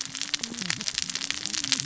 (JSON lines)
{"label": "biophony, cascading saw", "recorder": "SoundTrap 600 or HydroMoth"}